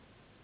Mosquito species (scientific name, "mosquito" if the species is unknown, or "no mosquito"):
Anopheles gambiae s.s.